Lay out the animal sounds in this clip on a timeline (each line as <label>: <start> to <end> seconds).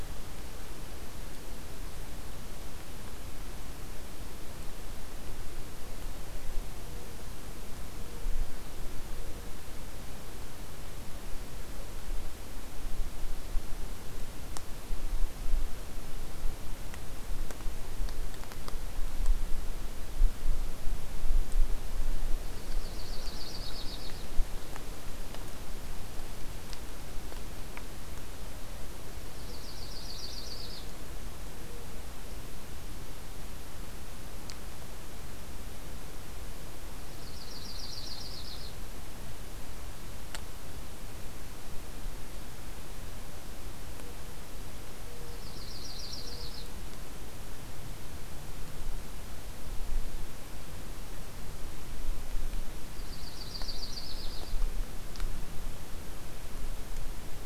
Yellow-rumped Warbler (Setophaga coronata): 22.4 to 24.3 seconds
Yellow-rumped Warbler (Setophaga coronata): 29.3 to 30.8 seconds
Yellow-rumped Warbler (Setophaga coronata): 37.0 to 38.8 seconds
Yellow-rumped Warbler (Setophaga coronata): 45.3 to 46.7 seconds
Yellow-rumped Warbler (Setophaga coronata): 52.9 to 54.6 seconds